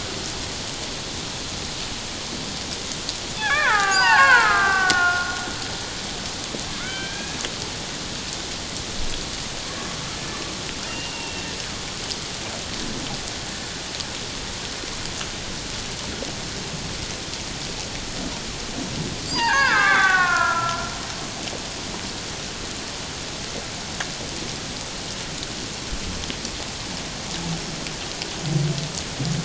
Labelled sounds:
3.3	5.3	killer whale, Bigg's (transient), 0.78 to 3.7 kHz
6.8	7.4	killer whale, Bigg's (transient), call T01, 1.2 to 3.2 kHz
10.8	11.5	killer whale, Bigg's (transient), 2.6 to 2.9 kHz
19.3	20.9	killer whale, Bigg's (transient), 0.78 to 5.0 kHz

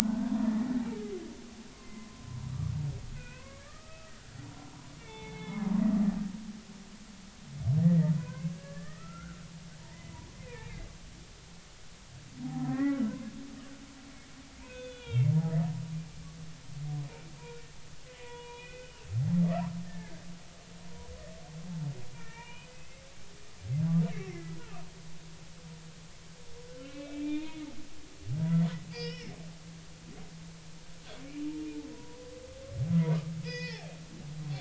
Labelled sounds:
0.0	0.5	humpback whale, 0.80 to 1.7 kHz
1.8	2.4	humpback whale, 0.96 to 2.1 kHz
3.1	4.1	humpback whale, 1.1 to 2.7 kHz
5.0	6.7	humpback whale, 0.80 to 4.0 kHz
7.8	9.4	humpback whale, 0.93 to 2.2 kHz
9.8	10.8	humpback whale, 0.86 to 2.6 kHz
12.4	13.0	humpback whale, 0.80 to 2.0 kHz
14.6	15.7	humpback whale, 1.3 to 3.6 kHz
18.1	19.1	humpback whale, 0.90 to 3.0 kHz
19.9	20.1	humpback whale, 1.6 to 1.9 kHz
22.1	23.0	humpback whale, 0.86 to 3.0 kHz
24.1	24.6	humpback whale, 1.9 to 2.4 kHz
26.8	27.7	humpback whale, 2.0 to 3.8 kHz
28.9	29.4	humpback whale, 1.7 to 5.6 kHz
31.9	32.2	humpback whale, 0.93 to 1.0 kHz
33.4	33.9	humpback whale, 1.7 to 5.6 kHz

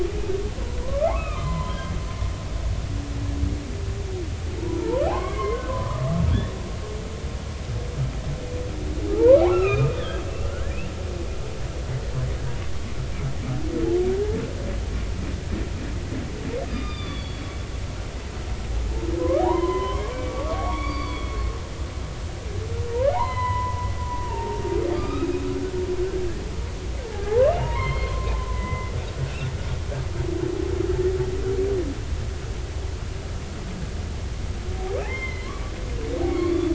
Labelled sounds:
0.8	1.9	humpback whale, 0.90 to 3.9 kHz
4.6	6.1	humpback whale, 0.80 to 2.4 kHz
9.1	10.8	humpback whale, 0.80 to 3.6 kHz
16.7	17.5	humpback whale, 1.1 to 4.9 kHz
19.2	21.5	humpback whale, 0.80 to 4.7 kHz
23.1	23.9	humpback whale, 0.80 to 4.3 kHz
24.3	24.6	humpback whale, 0.86 to 0.96 kHz
24.9	26.4	humpback whale, 1.1 to 5.1 kHz
27.1	29.3	humpback whale, 0.80 to 4.3 kHz
35.0	35.7	humpback whale, 0.93 to 3.2 kHz
36.3	36.7	humpback whale, 1.0 to 2.3 kHz

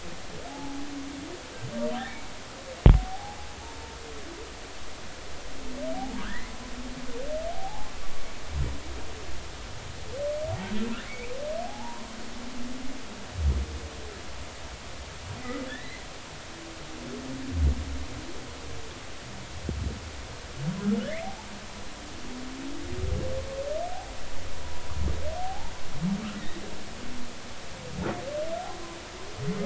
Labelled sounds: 0.5	0.9	humpback whale, 0.80 to 0.93 kHz
3.0	3.9	humpback whale, 0.80 to 0.96 kHz
5.9	6.5	humpback whale, 0.80 to 2.2 kHz
7.5	7.9	humpback whale, 0.80 to 0.96 kHz
11.0	12.1	humpback whale, 0.80 to 2.7 kHz
15.7	16.0	humpback whale, 1.4 to 2.1 kHz
16.4	16.7	humpback whale, 1.7 to 2.1 kHz
21.2	21.5	humpback whale, 0.80 to 0.96 kHz
24.5	24.8	humpback whale, 0.83 to 1.0 kHz
25.4	25.7	humpback whale, 0.80 to 0.99 kHz
26.4	26.6	humpback whale, 1.7 to 2.0 kHz

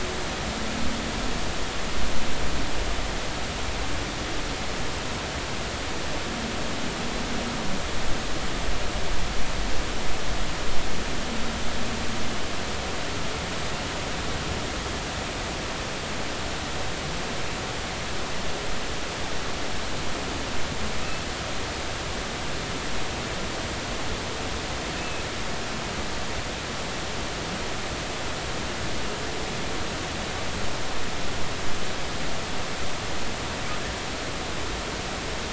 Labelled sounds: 25.0	25.2	humpback whale, 2.5 to 2.7 kHz

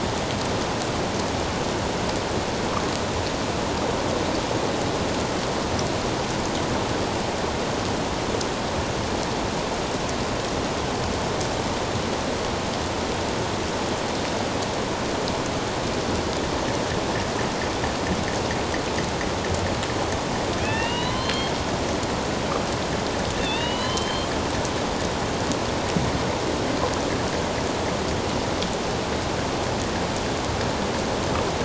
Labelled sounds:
20.6	21.5	killer whale, northern resident, A clan, AB subclan, 1.6 to 4.4 kHz
23.3	24.3	killer whale, northern resident, A clan, AB subclan, 0.97 to 4.2 kHz

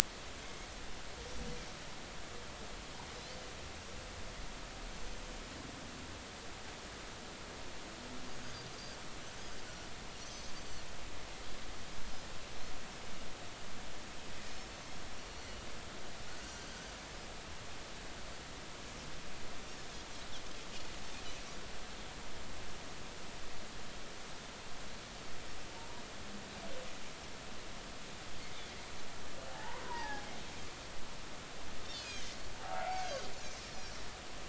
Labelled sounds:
0.4	0.7	Pacific white-sided dolphin, 2.1 to 2.2 kHz
8.7	9.0	Pacific white-sided dolphin, 4.6 to 4.9 kHz
10.2	10.5	Pacific white-sided dolphin, 6.0 to 6.2 kHz
14.5	14.7	Pacific white-sided dolphin, 5.2 to 5.4 kHz
15.2	15.5	Pacific white-sided dolphin, 5.8 to 5.9 kHz
16.5	16.7	Pacific white-sided dolphin, 6.1 to 6.4 kHz
29.5	30.3	humpback whale, 0.80 to 2.0 kHz
32.0	32.2	Pacific white-sided dolphin, 2.3 to 5.1 kHz
32.6	33.1	humpback whale, 0.80 to 2.4 kHz

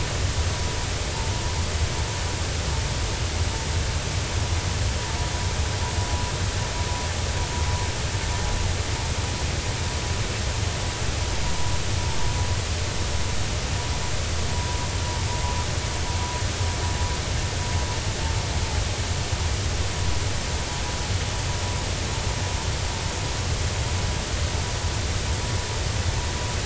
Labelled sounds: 5.0	5.3	vessel noise, 0.86 to 0.99 kHz
14.5	14.8	vessel noise, 0.93 to 1.0 kHz

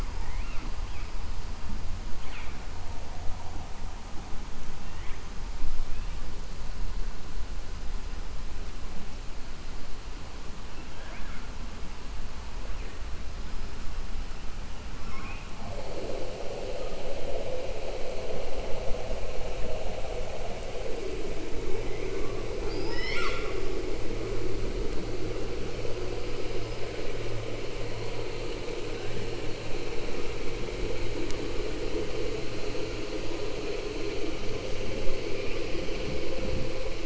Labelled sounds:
0.1	0.7	killer whale, southern resident, 0.85 to 3.0 kHz
22.6	23.6	killer whale, southern resident, 0.83 to 7.7 kHz

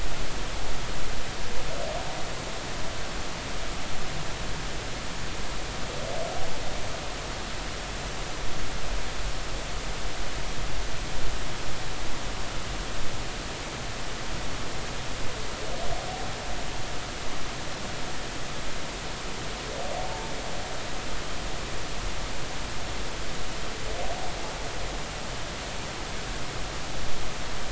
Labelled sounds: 20.1	20.3	humpback whale, 0.86 to 0.96 kHz

